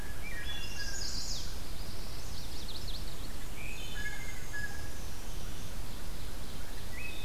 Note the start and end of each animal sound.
[0.00, 1.16] Blue Jay (Cyanocitta cristata)
[0.03, 0.87] Wood Thrush (Hylocichla mustelina)
[0.33, 3.39] Chestnut-sided Warbler (Setophaga pensylvanica)
[2.13, 5.76] Black-and-white Warbler (Mniotilta varia)
[3.38, 4.36] Wood Thrush (Hylocichla mustelina)
[3.90, 5.05] Blue Jay (Cyanocitta cristata)
[5.41, 6.98] Ovenbird (Seiurus aurocapilla)
[6.73, 7.24] Wood Thrush (Hylocichla mustelina)

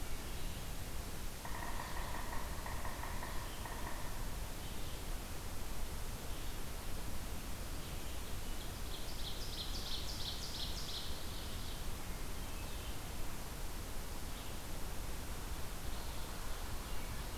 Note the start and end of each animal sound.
[0.00, 17.38] Red-eyed Vireo (Vireo olivaceus)
[1.08, 4.65] Yellow-bellied Sapsucker (Sphyrapicus varius)
[8.34, 12.16] Ovenbird (Seiurus aurocapilla)

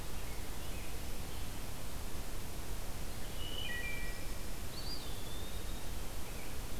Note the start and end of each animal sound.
[0.00, 1.59] Scarlet Tanager (Piranga olivacea)
[3.29, 4.43] Wood Thrush (Hylocichla mustelina)
[4.59, 6.02] Eastern Wood-Pewee (Contopus virens)
[6.00, 6.79] Scarlet Tanager (Piranga olivacea)

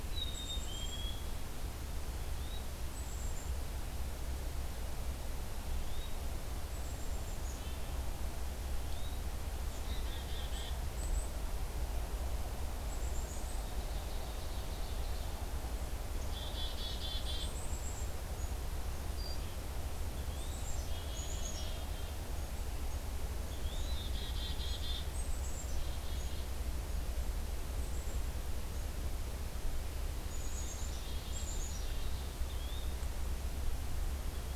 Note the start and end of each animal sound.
[0.00, 1.36] Black-capped Chickadee (Poecile atricapillus)
[2.12, 2.68] Yellow-bellied Flycatcher (Empidonax flaviventris)
[2.83, 3.56] Black-capped Chickadee (Poecile atricapillus)
[5.58, 6.17] Yellow-bellied Flycatcher (Empidonax flaviventris)
[6.64, 7.88] Black-capped Chickadee (Poecile atricapillus)
[8.69, 9.29] Yellow-bellied Flycatcher (Empidonax flaviventris)
[9.70, 11.35] Black-capped Chickadee (Poecile atricapillus)
[12.88, 13.60] Black-capped Chickadee (Poecile atricapillus)
[13.45, 15.31] Ovenbird (Seiurus aurocapilla)
[16.09, 18.25] Black-capped Chickadee (Poecile atricapillus)
[20.02, 20.64] Yellow-bellied Flycatcher (Empidonax flaviventris)
[20.36, 22.14] Black-capped Chickadee (Poecile atricapillus)
[23.35, 23.97] Yellow-bellied Flycatcher (Empidonax flaviventris)
[23.71, 26.48] Black-capped Chickadee (Poecile atricapillus)
[27.58, 28.90] Black-capped Chickadee (Poecile atricapillus)
[30.27, 32.40] Black-capped Chickadee (Poecile atricapillus)
[32.41, 32.95] Yellow-bellied Flycatcher (Empidonax flaviventris)

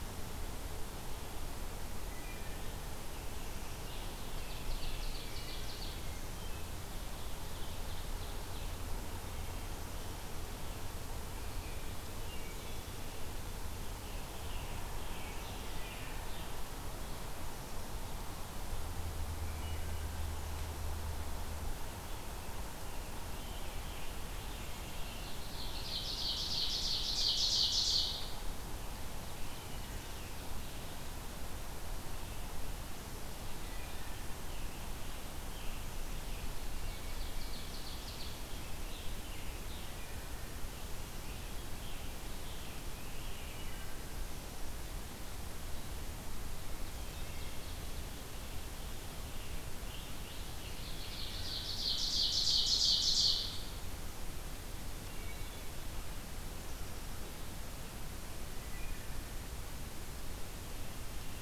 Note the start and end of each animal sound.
[1.89, 2.67] Wood Thrush (Hylocichla mustelina)
[3.56, 6.26] Ovenbird (Seiurus aurocapilla)
[6.25, 6.86] Wood Thrush (Hylocichla mustelina)
[6.51, 8.83] Ovenbird (Seiurus aurocapilla)
[12.26, 12.95] Wood Thrush (Hylocichla mustelina)
[13.52, 16.70] Scarlet Tanager (Piranga olivacea)
[19.34, 20.00] Wood Thrush (Hylocichla mustelina)
[22.80, 26.02] Scarlet Tanager (Piranga olivacea)
[25.23, 28.91] Ovenbird (Seiurus aurocapilla)
[33.55, 34.36] Wood Thrush (Hylocichla mustelina)
[34.35, 36.71] Scarlet Tanager (Piranga olivacea)
[36.59, 38.74] Ovenbird (Seiurus aurocapilla)
[38.12, 40.01] Scarlet Tanager (Piranga olivacea)
[41.08, 43.74] Scarlet Tanager (Piranga olivacea)
[43.54, 44.05] Wood Thrush (Hylocichla mustelina)
[46.90, 47.64] Wood Thrush (Hylocichla mustelina)
[49.27, 51.29] Scarlet Tanager (Piranga olivacea)
[50.06, 53.65] Ovenbird (Seiurus aurocapilla)
[54.79, 55.63] Wood Thrush (Hylocichla mustelina)
[58.58, 59.37] Wood Thrush (Hylocichla mustelina)

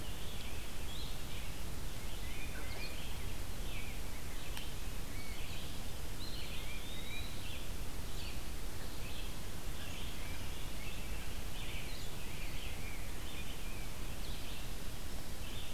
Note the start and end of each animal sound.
[0.00, 15.73] Red-eyed Vireo (Vireo olivaceus)
[1.97, 2.99] Tufted Titmouse (Baeolophus bicolor)
[6.07, 7.57] Eastern Wood-Pewee (Contopus virens)
[6.34, 7.50] Tufted Titmouse (Baeolophus bicolor)

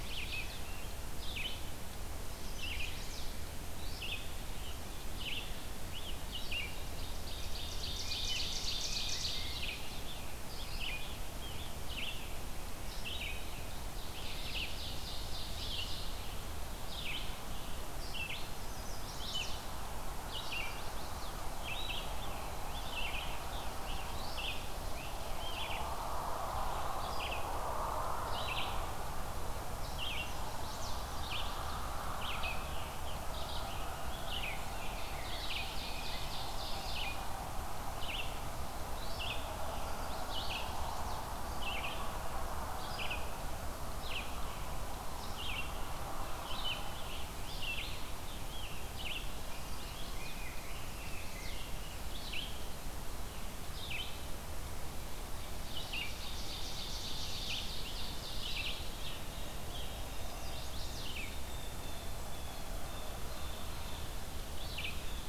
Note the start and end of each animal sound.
[0.00, 1.03] Rose-breasted Grosbeak (Pheucticus ludovicianus)
[0.00, 13.38] Red-eyed Vireo (Vireo olivaceus)
[2.04, 3.27] Chestnut-sided Warbler (Setophaga pensylvanica)
[6.90, 9.83] Ovenbird (Seiurus aurocapilla)
[7.93, 9.96] Rose-breasted Grosbeak (Pheucticus ludovicianus)
[9.78, 11.84] Scarlet Tanager (Piranga olivacea)
[13.80, 16.26] Ovenbird (Seiurus aurocapilla)
[13.83, 65.29] Red-eyed Vireo (Vireo olivaceus)
[18.37, 19.72] Chestnut-sided Warbler (Setophaga pensylvanica)
[20.39, 21.41] Chestnut-sided Warbler (Setophaga pensylvanica)
[21.81, 25.84] Scarlet Tanager (Piranga olivacea)
[29.88, 31.87] Chestnut-sided Warbler (Setophaga pensylvanica)
[32.63, 34.54] Scarlet Tanager (Piranga olivacea)
[34.50, 37.34] Ovenbird (Seiurus aurocapilla)
[34.65, 37.07] Rose-breasted Grosbeak (Pheucticus ludovicianus)
[39.71, 41.25] Chestnut-sided Warbler (Setophaga pensylvanica)
[46.62, 49.13] Scarlet Tanager (Piranga olivacea)
[49.31, 50.35] Chestnut-sided Warbler (Setophaga pensylvanica)
[49.44, 52.19] Rose-breasted Grosbeak (Pheucticus ludovicianus)
[50.63, 51.63] Chestnut-sided Warbler (Setophaga pensylvanica)
[55.29, 58.72] Ovenbird (Seiurus aurocapilla)
[59.26, 65.29] Blue Jay (Cyanocitta cristata)
[59.87, 61.25] Chestnut-sided Warbler (Setophaga pensylvanica)

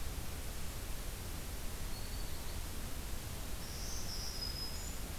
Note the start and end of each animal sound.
[1.43, 2.57] Black-throated Green Warbler (Setophaga virens)
[3.52, 5.18] Black-throated Green Warbler (Setophaga virens)

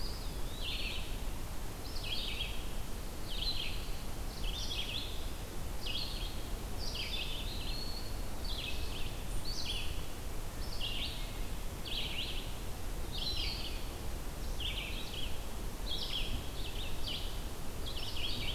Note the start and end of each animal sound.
[0.00, 1.21] Eastern Wood-Pewee (Contopus virens)
[0.00, 7.46] Red-eyed Vireo (Vireo olivaceus)
[6.73, 8.29] Eastern Wood-Pewee (Contopus virens)
[8.24, 18.53] Red-eyed Vireo (Vireo olivaceus)
[13.03, 13.95] Eastern Wood-Pewee (Contopus virens)

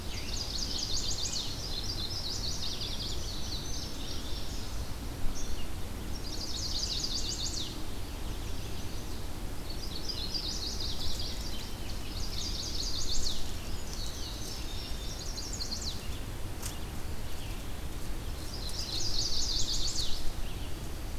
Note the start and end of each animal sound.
[0.00, 1.74] Scarlet Tanager (Piranga olivacea)
[0.00, 3.25] Chestnut-sided Warbler (Setophaga pensylvanica)
[3.05, 4.75] Indigo Bunting (Passerina cyanea)
[6.08, 11.39] Chestnut-sided Warbler (Setophaga pensylvanica)
[11.91, 13.60] Chestnut-sided Warbler (Setophaga pensylvanica)
[13.52, 15.20] Indigo Bunting (Passerina cyanea)
[14.93, 16.07] Chestnut-sided Warbler (Setophaga pensylvanica)
[18.41, 20.32] Chestnut-sided Warbler (Setophaga pensylvanica)

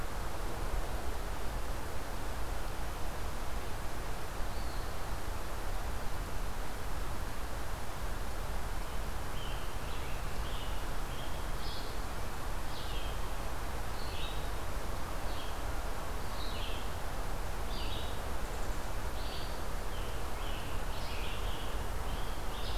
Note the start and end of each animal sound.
[4.30, 5.05] Eastern Wood-Pewee (Contopus virens)
[8.69, 11.59] Scarlet Tanager (Piranga olivacea)
[11.34, 16.84] Red-eyed Vireo (Vireo olivaceus)
[17.54, 22.78] Red-eyed Vireo (Vireo olivaceus)
[19.75, 21.89] Scarlet Tanager (Piranga olivacea)

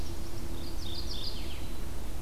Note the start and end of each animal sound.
[0.00, 0.59] Chestnut-sided Warbler (Setophaga pensylvanica)
[0.48, 1.83] Mourning Warbler (Geothlypis philadelphia)

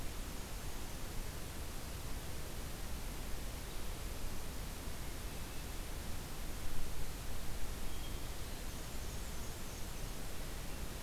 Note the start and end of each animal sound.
[0.00, 1.11] Black-and-white Warbler (Mniotilta varia)
[7.64, 8.81] Hermit Thrush (Catharus guttatus)
[8.45, 10.14] Black-and-white Warbler (Mniotilta varia)

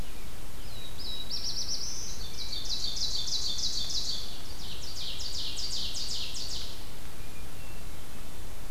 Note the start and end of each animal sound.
[0.42, 2.29] Black-throated Blue Warbler (Setophaga caerulescens)
[2.10, 6.83] Ovenbird (Seiurus aurocapilla)
[7.36, 8.70] Hermit Thrush (Catharus guttatus)

